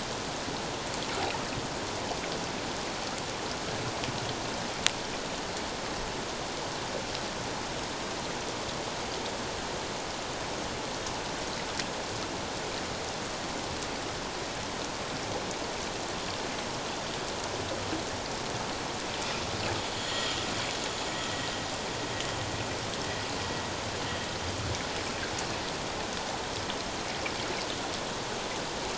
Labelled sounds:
19.9	20.4	vessel noise, 3.1 to 7.2 kHz

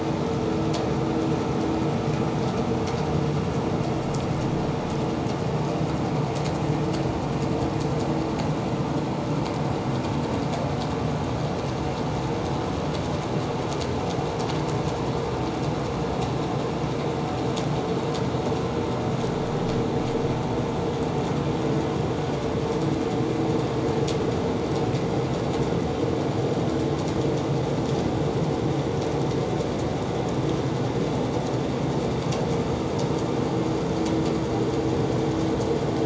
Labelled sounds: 0.7	1.0	vessel noise, 4.4 to 4.7 kHz

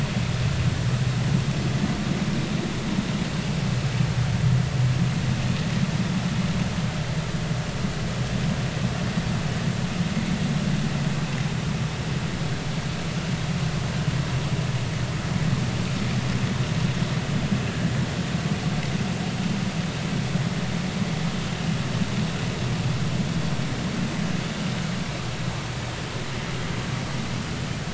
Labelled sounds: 17.7	17.9	vessel noise, 1.6 to 1.8 kHz

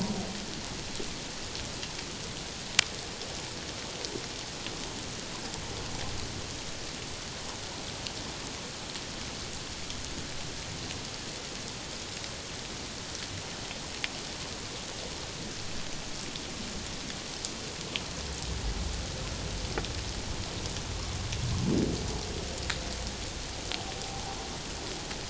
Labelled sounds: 24.0	24.2	humpback whale, 0.78 to 0.88 kHz

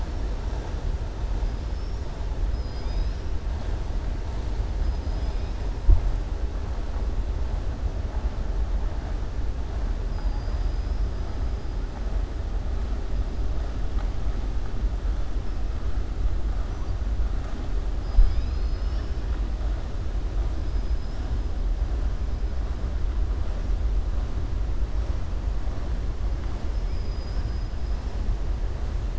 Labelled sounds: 2.4	3.2	killer whale, southern resident, 2.3 to 5.7 kHz
10.1	11.1	killer whale, southern resident, 4.7 to 5.6 kHz
17.9	19.2	killer whale, southern resident, 2.2 to 5.6 kHz

